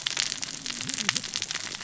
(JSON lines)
{"label": "biophony, cascading saw", "recorder": "SoundTrap 600 or HydroMoth"}